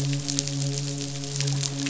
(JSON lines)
{"label": "biophony, midshipman", "recorder": "SoundTrap 500"}